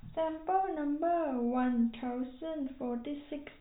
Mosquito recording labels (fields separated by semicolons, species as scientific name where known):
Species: no mosquito; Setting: cup